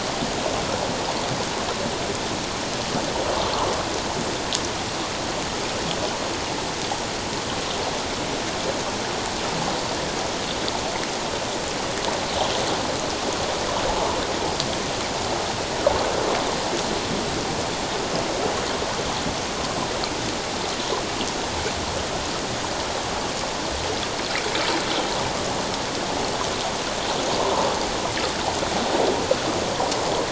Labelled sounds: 27.4	27.7	water noise, 0.88 to 1.1 kHz

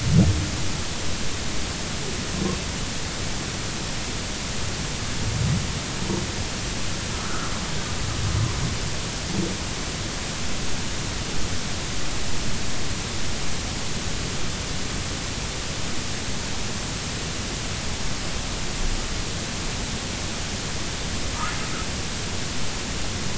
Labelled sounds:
7.1	7.5	humpback whale, 1.2 to 1.5 kHz

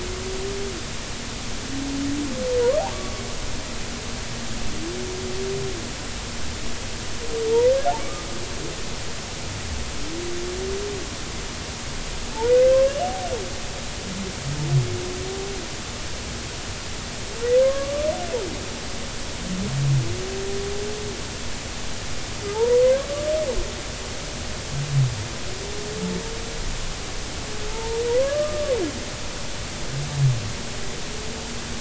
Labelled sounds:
2.9	3.2	humpback whale, 1.1 to 1.2 kHz
8.0	8.2	humpback whale, 1.1 to 1.3 kHz
12.8	13.1	humpback whale, 2.6 to 3.0 kHz
17.6	18.1	humpback whale, 1.0 to 1.2 kHz
22.5	22.8	humpback whale, 0.83 to 1.0 kHz
27.7	28.8	humpback whale, 0.86 to 1.3 kHz

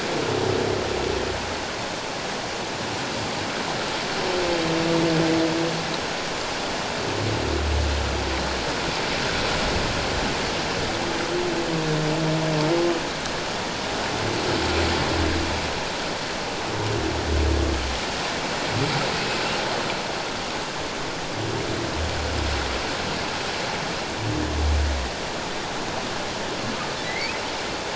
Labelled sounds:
19.1	19.4	humpback whale, 2.5 to 2.6 kHz
27.0	27.4	humpback whale, 1.9 to 2.7 kHz

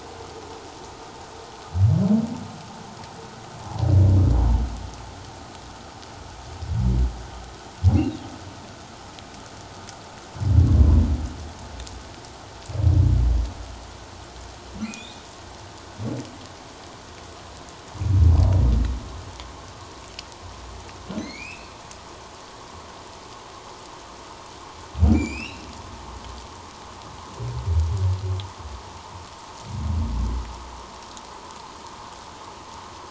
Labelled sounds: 10.7	11.0	humpback whale, 0.94 to 1.2 kHz
14.8	15.2	humpback whale, 2.0 to 3.9 kHz
21.2	21.7	humpback whale, 1.9 to 4.4 kHz
25.1	25.7	humpback whale, 2.1 to 7.7 kHz

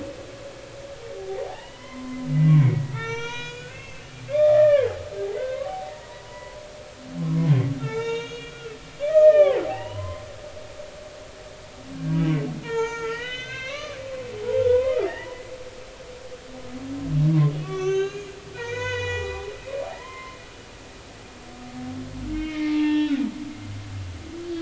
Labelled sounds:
1.4	5.0	humpback whale, 0.80 to 6.9 kHz
5.2	6.6	humpback whale, 0.80 to 2.1 kHz
7.2	7.5	humpback whale, 0.96 to 1.1 kHz
7.8	8.7	humpback whale, 0.83 to 6.9 kHz
9.0	10.3	humpback whale, 0.80 to 3.1 kHz
11.9	14.0	humpback whale, 0.83 to 6.6 kHz
14.7	15.4	humpback whale, 0.80 to 3.0 kHz
17.6	19.4	humpback whale, 0.80 to 7.1 kHz
19.8	20.4	humpback whale, 0.80 to 2.2 kHz
22.3	23.2	humpback whale, 0.83 to 3.4 kHz

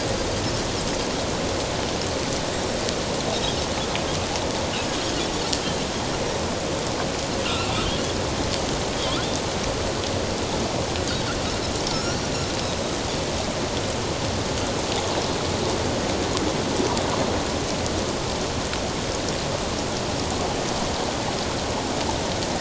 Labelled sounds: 7.4	7.7	Pacific white-sided dolphin, 2.5 to 2.9 kHz
9.0	9.2	Pacific white-sided dolphin, 3.0 to 3.6 kHz
11.9	12.2	Pacific white-sided dolphin, 1.3 to 5.9 kHz

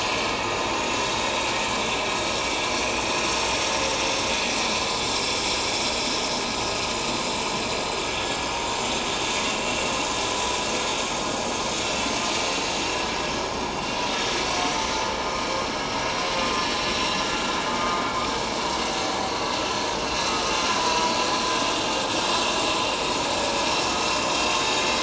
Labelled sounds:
2.3	2.5	vessel noise, 5.4 to 5.6 kHz
8.1	8.4	vessel noise, 3.2 to 3.4 kHz
9.2	9.9	vessel noise, 2.7 to 6.7 kHz
14.1	14.3	vessel noise, 3.6 to 3.7 kHz
19.2	19.5	vessel noise, 4.3 to 4.4 kHz
20.0	21.1	vessel noise, 0.94 to 4.1 kHz

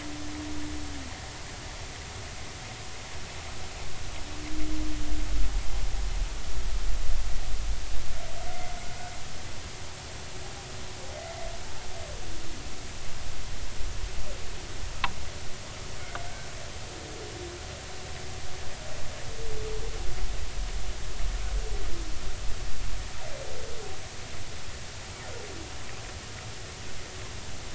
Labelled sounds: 11.1	11.4	humpback whale, 2.0 to 2.2 kHz

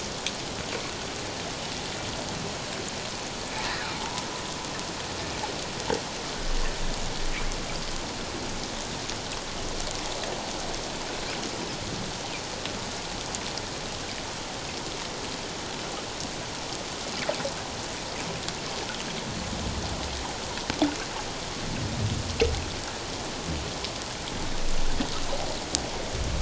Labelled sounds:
4.0	4.2	humpback whale, 0.81 to 1.0 kHz

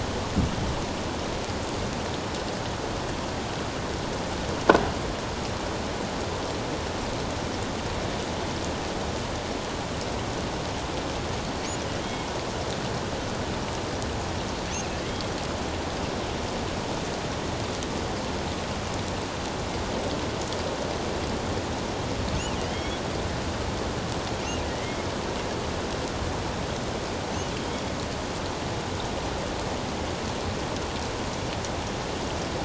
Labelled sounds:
22.7	23.0	killer whale, offshore, 2.0 to 3.6 kHz
24.7	25.1	killer whale, offshore, 1.8 to 2.2 kHz

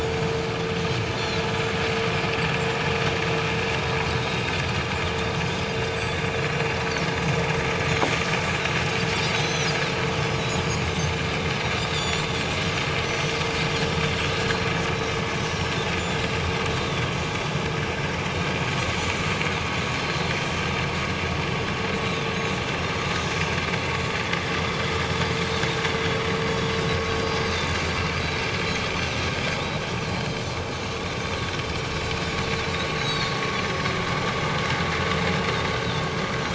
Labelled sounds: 0.0	1.4	Pacific white-sided dolphin, 3.8 to 7.2 kHz
4.2	4.4	Pacific white-sided dolphin, 3.7 to 3.8 kHz
7.9	8.1	Pacific white-sided dolphin, 6.4 to 6.9 kHz
9.4	9.7	Pacific white-sided dolphin, 3.8 to 6.4 kHz
10.6	11.1	Pacific white-sided dolphin, 4.6 to 6.5 kHz
11.9	12.3	Pacific white-sided dolphin, 3.4 to 7.6 kHz
13.0	13.3	Pacific white-sided dolphin, 5.9 to 6.7 kHz
14.3	14.7	Pacific white-sided dolphin, 4.1 to 4.2 kHz
15.5	15.7	Pacific white-sided dolphin, 5.3 to 5.8 kHz
16.8	17.1	Pacific white-sided dolphin, 3.2 to 3.7 kHz
20.0	20.2	Pacific white-sided dolphin, 4.0 to 4.4 kHz
22.0	22.3	Pacific white-sided dolphin, 3.4 to 4.0 kHz
26.5	26.7	Pacific white-sided dolphin, 3.3 to 3.4 kHz
28.2	28.5	Pacific white-sided dolphin, 7.7 to 8.0 kHz
31.1	31.4	Pacific white-sided dolphin, 3.5 to 3.7 kHz
33.0	33.3	Pacific white-sided dolphin, 3.6 to 4.0 kHz

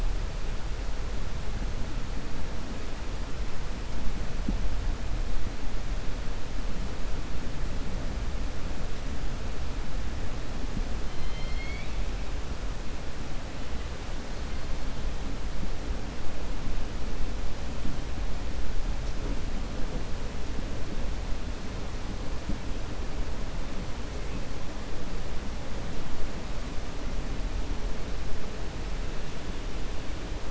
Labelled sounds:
11.0	12.0	killer whale, 2.1 to 5.2 kHz

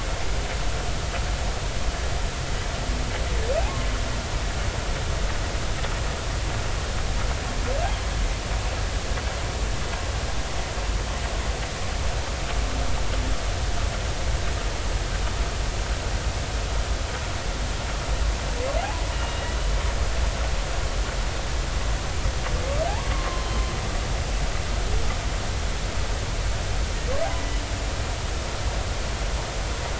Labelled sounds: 19.1	19.4	humpback whale, 2.8 to 2.9 kHz
23.1	23.6	humpback whale, 0.99 to 1.2 kHz

